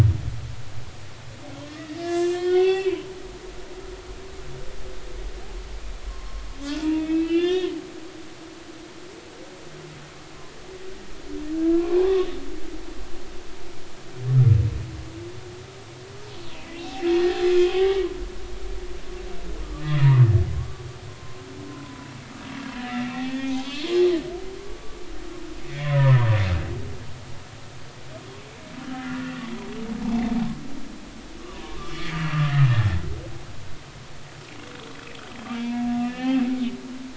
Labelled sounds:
1.6	3.0	humpback whale, 0.80 to 4.7 kHz
6.1	7.7	humpback whale, 0.90 to 4.4 kHz
11.5	12.3	humpback whale, 0.96 to 1.7 kHz
17.1	17.9	humpback whale, 1.0 to 3.3 kHz
19.7	20.2	humpback whale, 1.1 to 2.1 kHz
20.5	20.8	humpback whale, 1.0 to 1.2 kHz
21.1	22.1	humpback whale, 0.93 to 1.1 kHz
22.8	23.7	humpback whale, 0.80 to 3.5 kHz
24.8	25.0	humpback whale, 1.1 to 1.2 kHz
25.7	26.2	humpback whale, 0.90 to 2.4 kHz
28.8	29.3	humpback whale, 1.2 to 1.5 kHz
31.5	32.1	humpback whale, 0.90 to 2.4 kHz
32.7	33.0	humpback whale, 1.7 to 1.9 kHz
36.0	36.4	humpback whale, 0.80 to 3.2 kHz

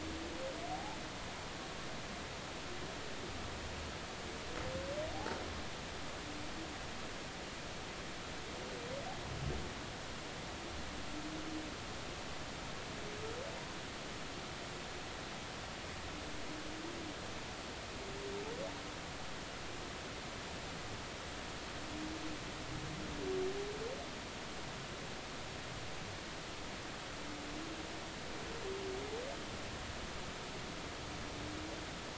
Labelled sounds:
0.7	1.0	humpback whale, 0.80 to 0.96 kHz

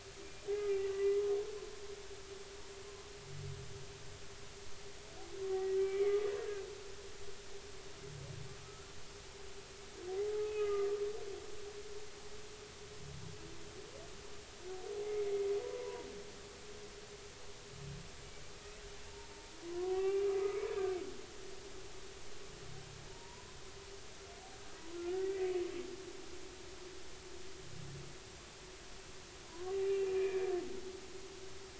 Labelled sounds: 0.5	1.2	humpback whale, 1.9 to 2.1 kHz
5.5	7.1	humpback whale, 1.5 to 2.4 kHz
8.6	8.9	humpback whale, 1.2 to 1.4 kHz
10.6	10.9	humpback whale, 1.2 to 1.3 kHz
15.6	16.1	humpback whale, 0.90 to 1.0 kHz
19.0	19.3	humpback whale, 0.86 to 0.99 kHz
19.7	21.0	humpback whale, 0.80 to 2.8 kHz
23.1	23.6	humpback whale, 0.86 to 1.1 kHz
24.9	25.3	humpback whale, 1.3 to 1.6 kHz
29.5	30.5	humpback whale, 0.93 to 2.6 kHz
30.8	31.1	humpback whale, 2.7 to 2.9 kHz

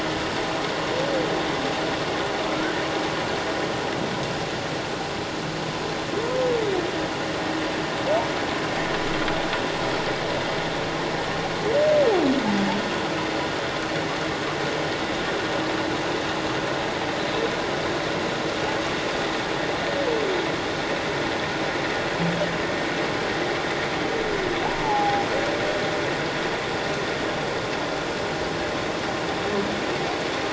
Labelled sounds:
24.8	25.2	humpback whale, 0.78 to 0.97 kHz

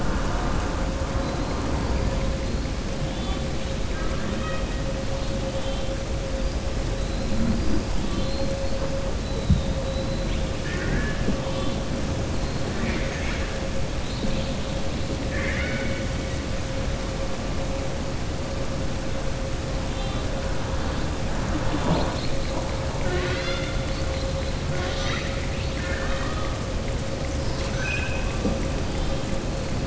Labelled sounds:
3.9	4.7	killer whale, southern resident, 1.1 to 3.8 kHz
15.2	16.0	killer whale, southern resident, 1.1 to 4.4 kHz
24.7	26.5	killer whale, southern resident, 1.1 to 6.0 kHz
27.2	28.4	killer whale, southern resident, 1.4 to 6.3 kHz

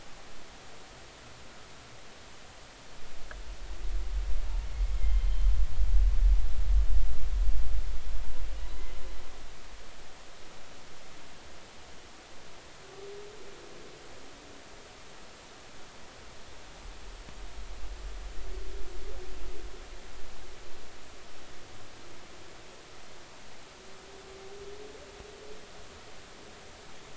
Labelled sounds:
5.0	5.3	humpback whale, 2.0 to 2.2 kHz

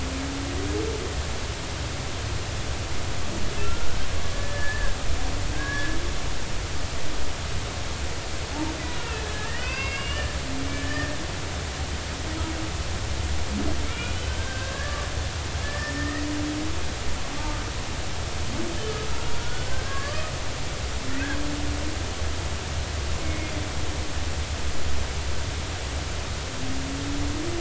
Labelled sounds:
3.6	3.9	humpback whale, 1.3 to 1.4 kHz
4.3	6.0	humpback whale, 1.5 to 1.8 kHz
8.9	11.1	humpback whale, 1.3 to 5.0 kHz
13.8	15.0	humpback whale, 1.5 to 3.1 kHz
15.6	16.2	humpback whale, 1.7 to 2.0 kHz
19.3	20.2	humpback whale, 1.1 to 1.8 kHz
23.2	23.5	humpback whale, 2.1 to 2.2 kHz

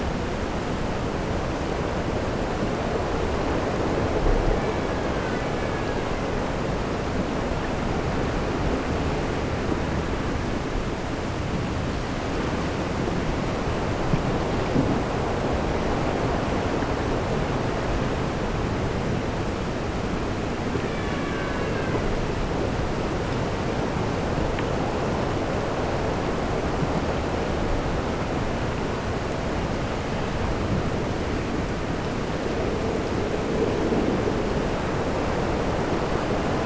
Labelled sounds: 4.4	6.4	killer whale, Bigg's (transient), AT1 transient, 1.4 to 4.1 kHz
20.8	22.1	killer whale, Bigg's (transient), AT1 transient, 0.90 to 4.2 kHz

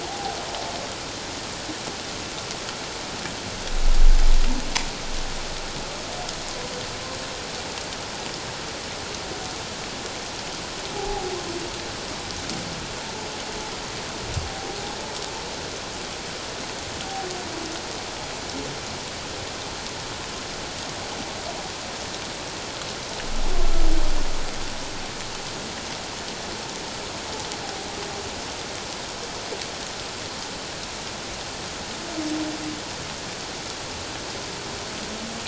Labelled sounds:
0.0	0.4	humpback whale, 0.78 to 0.94 kHz
11.0	11.3	humpback whale, 0.78 to 0.88 kHz

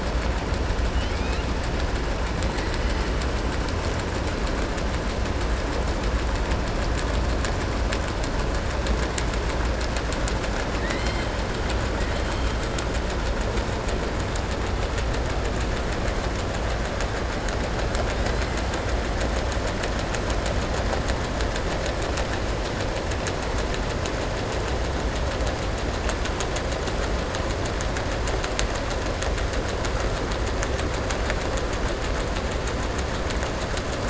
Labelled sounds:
0.9	1.4	killer whale, southern resident, 2.2 to 5.1 kHz

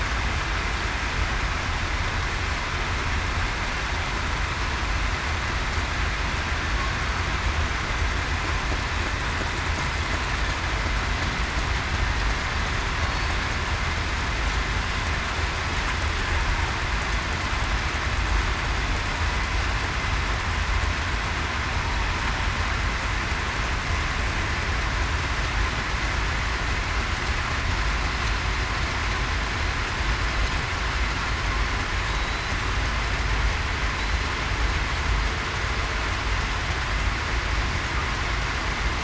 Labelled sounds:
32.1	32.5	killer whale, southern resident, 3.8 to 4.1 kHz

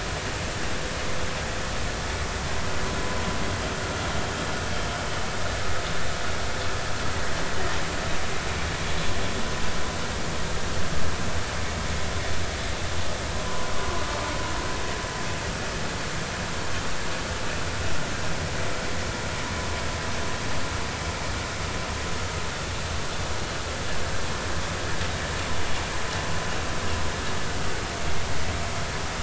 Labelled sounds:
13.5	13.7	vessel noise, 0.96 to 1.1 kHz

